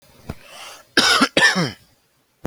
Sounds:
Cough